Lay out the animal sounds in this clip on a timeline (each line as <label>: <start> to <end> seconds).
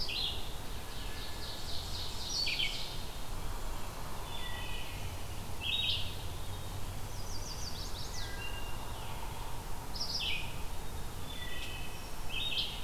Red-eyed Vireo (Vireo olivaceus): 0.0 to 12.8 seconds
Wood Thrush (Hylocichla mustelina): 0.3 to 3.2 seconds
Wood Thrush (Hylocichla mustelina): 4.1 to 5.1 seconds
Chestnut-sided Warbler (Setophaga pensylvanica): 6.9 to 8.7 seconds
Wood Thrush (Hylocichla mustelina): 8.0 to 8.8 seconds
Wood Thrush (Hylocichla mustelina): 11.2 to 12.1 seconds